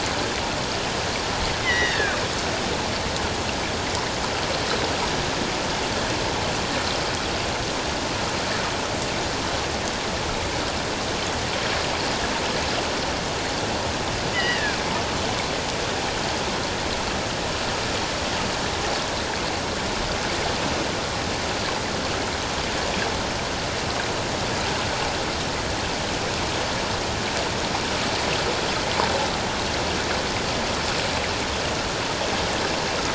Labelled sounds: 1.6	2.2	killer whale, offshore, 1.4 to 3.9 kHz
14.3	14.8	killer whale, offshore, 1.4 to 5.1 kHz

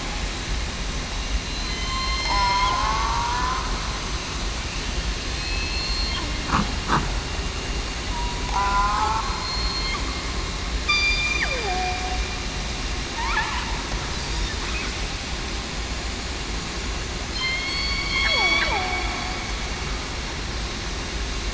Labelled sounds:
1.4	3.6	killer whale, southern resident, 0.82 to 5.4 kHz
5.3	6.1	killer whale, southern resident, 2.5 to 4.3 kHz
8.4	9.3	killer whale, southern resident, 0.73 to 1.5 kHz
10.9	11.8	killer whale, southern resident, 0.35 to 4.8 kHz
17.3	18.2	killer whale, southern resident, 3.1 to 4.5 kHz
18.7	19.0	killer whale, southern resident, 0.70 to 0.98 kHz

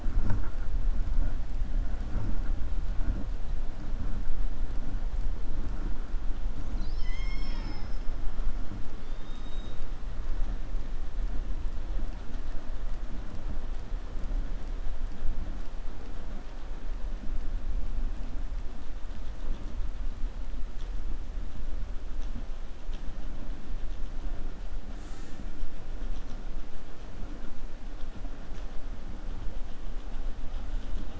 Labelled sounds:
9.0	9.8	killer whale, 2.9 to 4.6 kHz

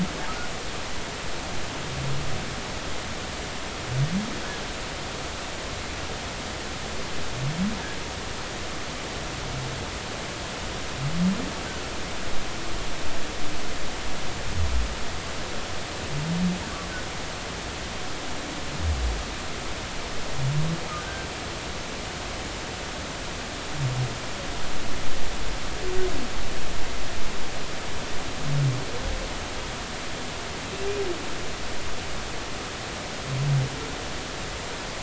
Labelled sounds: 21.0	21.3	humpback whale, 1.4 to 1.6 kHz

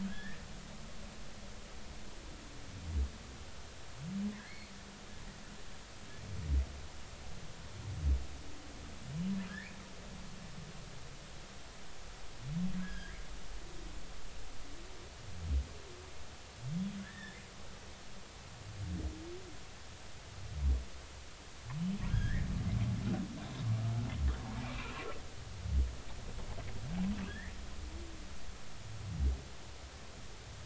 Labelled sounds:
0.1	0.4	humpback whale, 1.4 to 1.9 kHz
4.4	4.7	humpback whale, 1.9 to 2.3 kHz
12.8	13.2	humpback whale, 1.5 to 3.4 kHz
17.0	17.4	humpback whale, 1.5 to 1.9 kHz
22.1	22.5	humpback whale, 1.5 to 2.4 kHz
24.7	25.1	humpback whale, 2.3 to 2.9 kHz
27.3	27.5	humpback whale, 1.5 to 2.1 kHz

